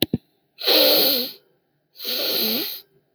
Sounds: Sniff